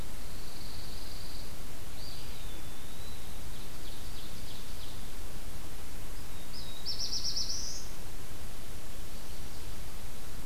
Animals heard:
Ovenbird (Seiurus aurocapilla), Eastern Wood-Pewee (Contopus virens), Pine Warbler (Setophaga pinus), Black-throated Blue Warbler (Setophaga caerulescens)

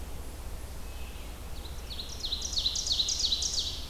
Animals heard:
Red-eyed Vireo (Vireo olivaceus), Eastern Chipmunk (Tamias striatus), Ovenbird (Seiurus aurocapilla)

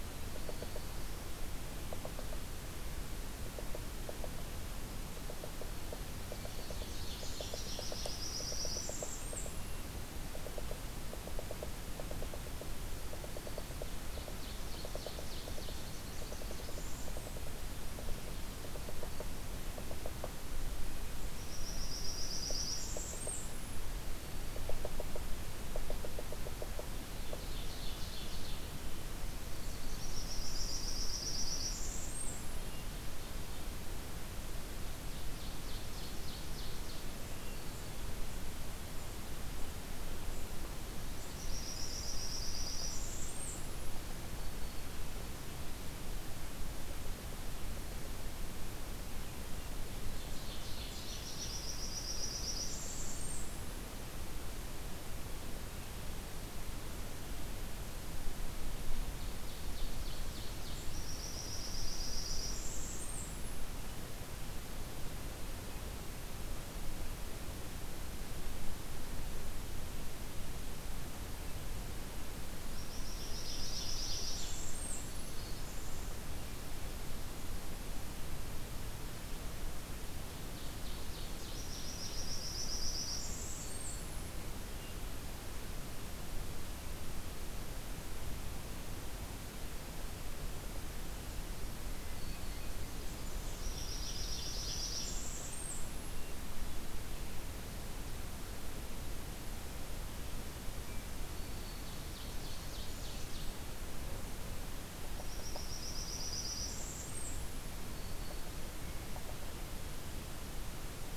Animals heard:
Ovenbird (Seiurus aurocapilla), Hermit Thrush (Catharus guttatus), Blackburnian Warbler (Setophaga fusca), Yellow-bellied Sapsucker (Sphyrapicus varius)

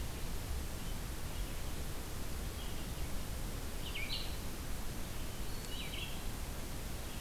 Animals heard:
Hermit Thrush (Catharus guttatus), Red-eyed Vireo (Vireo olivaceus)

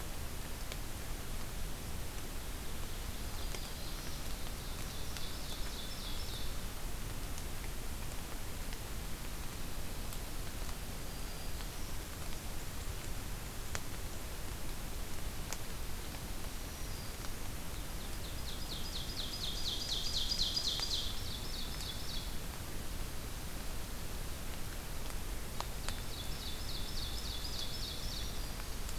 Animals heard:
Black-throated Green Warbler (Setophaga virens), Ovenbird (Seiurus aurocapilla)

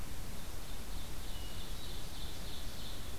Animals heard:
Hermit Thrush (Catharus guttatus), Ovenbird (Seiurus aurocapilla)

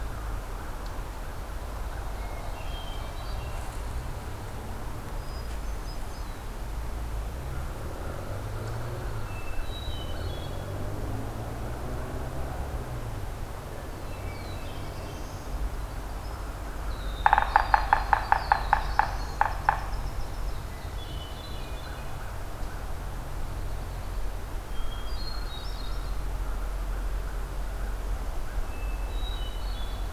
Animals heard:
Winter Wren (Troglodytes hiemalis), Hermit Thrush (Catharus guttatus), Black-throated Blue Warbler (Setophaga caerulescens), Pine Warbler (Setophaga pinus), American Crow (Corvus brachyrhynchos), Ovenbird (Seiurus aurocapilla), Yellow-bellied Sapsucker (Sphyrapicus varius)

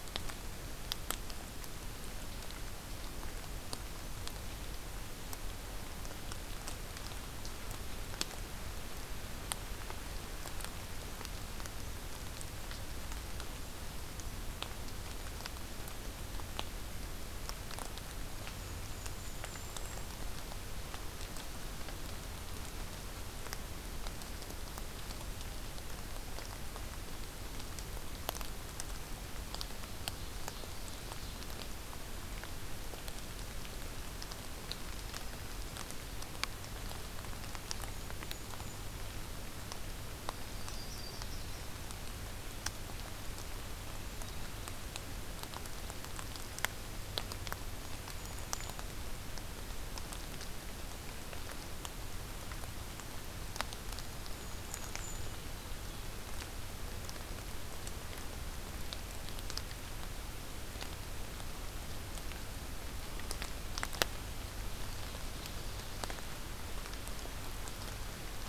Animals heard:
Golden-crowned Kinglet (Regulus satrapa), Yellow-rumped Warbler (Setophaga coronata), Ovenbird (Seiurus aurocapilla)

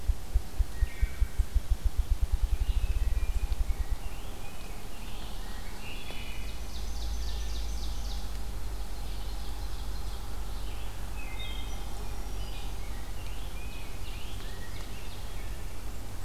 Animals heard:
Ovenbird (Seiurus aurocapilla), Rose-breasted Grosbeak (Pheucticus ludovicianus), Black-throated Green Warbler (Setophaga virens), Wood Thrush (Hylocichla mustelina), Ruffed Grouse (Bonasa umbellus), Red-eyed Vireo (Vireo olivaceus)

